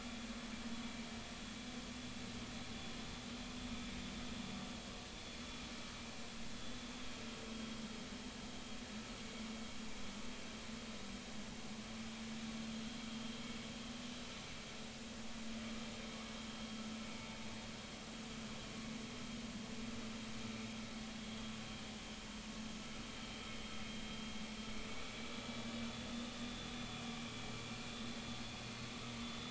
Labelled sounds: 24.9	25.8	vessel noise, 2.2 to 3.5 kHz
29.2	29.4	vessel noise, 3.4 to 3.5 kHz

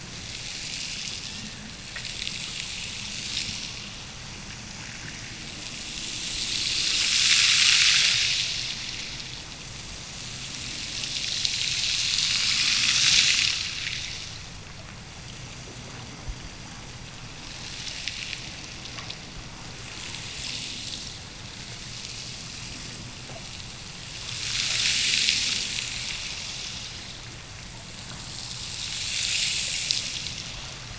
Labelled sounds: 1.2	2.2	killer whale, Bigg's (transient), Gulf of Alaska transient, 1.4 to 2.9 kHz

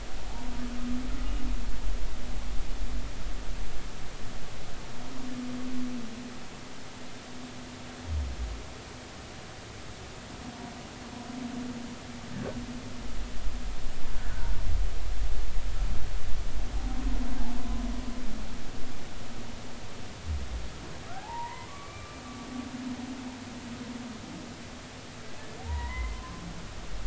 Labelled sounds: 21.1	22.2	humpback whale, 0.80 to 2.4 kHz
25.6	26.4	humpback whale, 0.80 to 2.1 kHz

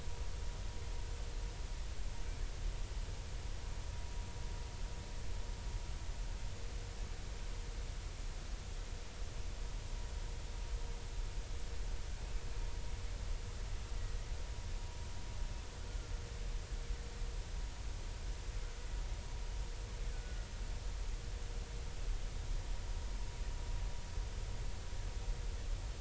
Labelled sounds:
20.1	20.5	killer whale, Bigg's (transient), 1.4 to 1.5 kHz

